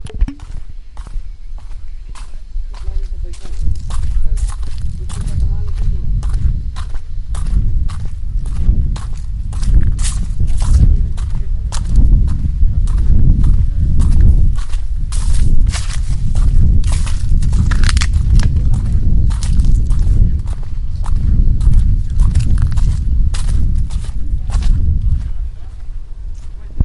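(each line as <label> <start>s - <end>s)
Footsteps in nature with murmuring voices in the background. 2.8s - 17.4s
Human footsteps breaking twigs on the ground. 17.4s - 18.3s
Footsteps in nature with murmuring voices in the background. 18.4s - 25.9s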